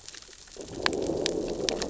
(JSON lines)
{"label": "biophony, growl", "recorder": "SoundTrap 600 or HydroMoth"}